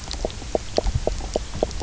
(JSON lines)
{"label": "biophony, knock croak", "recorder": "SoundTrap 300"}